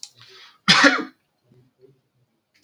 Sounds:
Sneeze